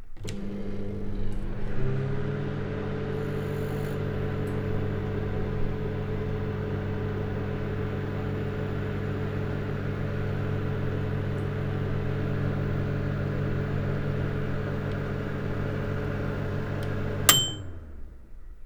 Does this machine require electricity to operate?
yes